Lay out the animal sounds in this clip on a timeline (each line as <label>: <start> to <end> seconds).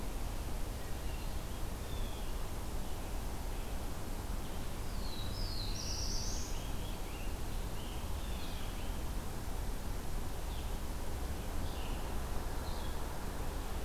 Blue Jay (Cyanocitta cristata): 1.7 to 2.5 seconds
Black-throated Blue Warbler (Setophaga caerulescens): 4.8 to 6.7 seconds
Scarlet Tanager (Piranga olivacea): 5.6 to 9.0 seconds
Red-eyed Vireo (Vireo olivaceus): 10.3 to 13.8 seconds
Blue-headed Vireo (Vireo solitarius): 12.5 to 13.8 seconds